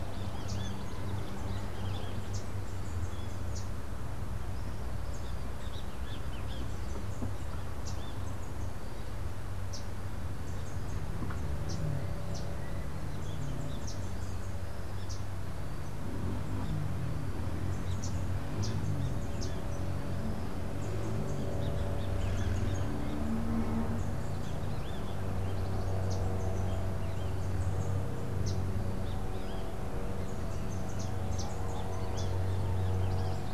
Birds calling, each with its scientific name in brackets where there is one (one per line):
Yellow Warbler (Setophaga petechia)